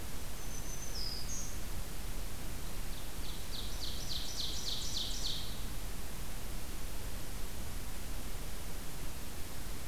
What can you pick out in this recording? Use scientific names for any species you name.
Setophaga virens, Seiurus aurocapilla